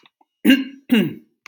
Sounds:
Throat clearing